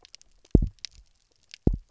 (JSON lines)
{"label": "biophony, double pulse", "recorder": "SoundTrap 300"}